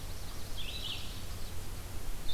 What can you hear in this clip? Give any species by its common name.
Yellow-rumped Warbler, Red-eyed Vireo